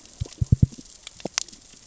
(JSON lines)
{"label": "biophony, knock", "recorder": "SoundTrap 600 or HydroMoth"}